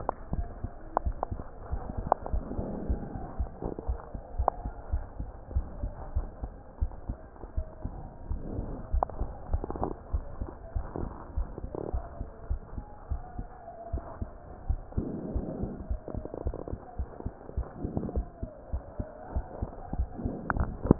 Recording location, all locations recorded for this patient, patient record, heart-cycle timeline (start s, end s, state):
pulmonary valve (PV)
aortic valve (AV)+pulmonary valve (PV)+tricuspid valve (TV)+mitral valve (MV)
#Age: Child
#Sex: Female
#Height: 116.0 cm
#Weight: 21.6 kg
#Pregnancy status: False
#Murmur: Absent
#Murmur locations: nan
#Most audible location: nan
#Systolic murmur timing: nan
#Systolic murmur shape: nan
#Systolic murmur grading: nan
#Systolic murmur pitch: nan
#Systolic murmur quality: nan
#Diastolic murmur timing: nan
#Diastolic murmur shape: nan
#Diastolic murmur grading: nan
#Diastolic murmur pitch: nan
#Diastolic murmur quality: nan
#Outcome: Abnormal
#Campaign: 2015 screening campaign
0.00	4.50	unannotated
4.50	4.64	systole
4.64	4.74	S2
4.74	4.92	diastole
4.92	5.06	S1
5.06	5.18	systole
5.18	5.28	S2
5.28	5.52	diastole
5.52	5.68	S1
5.68	5.80	systole
5.80	5.92	S2
5.92	6.14	diastole
6.14	6.30	S1
6.30	6.42	systole
6.42	6.54	S2
6.54	6.80	diastole
6.80	6.94	S1
6.94	7.08	systole
7.08	7.18	S2
7.18	7.53	diastole
7.53	7.63	S1
7.63	7.79	systole
7.79	7.95	S2
7.95	8.27	diastole
8.27	8.42	S1
8.42	8.56	systole
8.56	8.70	S2
8.70	8.90	diastole
8.90	9.08	S1
9.08	9.18	systole
9.18	9.28	S2
9.28	9.50	diastole
9.50	9.64	S1
9.64	9.80	systole
9.80	9.92	S2
9.92	10.12	diastole
10.12	10.26	S1
10.26	10.38	systole
10.38	10.48	S2
10.48	10.74	diastole
10.74	10.86	S1
10.86	10.96	systole
10.96	11.10	S2
11.10	11.34	diastole
11.34	11.48	S1
11.48	11.62	systole
11.62	11.70	S2
11.70	11.92	diastole
11.92	12.06	S1
12.06	12.20	systole
12.20	12.28	S2
12.28	12.48	diastole
12.48	12.62	S1
12.62	12.74	systole
12.74	12.84	S2
12.84	13.10	diastole
13.10	13.24	S1
13.24	13.36	systole
13.36	13.50	S2
13.50	13.89	diastole
13.89	14.04	S1
14.04	14.20	systole
14.20	14.34	S2
14.34	14.64	diastole
14.64	14.82	S1
14.82	14.96	systole
14.96	15.06	S2
15.06	15.28	diastole
15.28	15.44	S1
15.44	15.56	systole
15.56	15.70	S2
15.70	15.88	diastole
15.88	20.99	unannotated